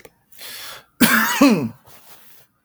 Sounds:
Sneeze